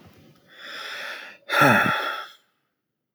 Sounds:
Sigh